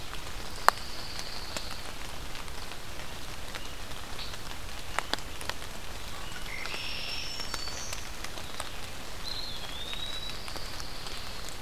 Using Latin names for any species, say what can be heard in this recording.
Setophaga pinus, Agelaius phoeniceus, Setophaga virens, Contopus virens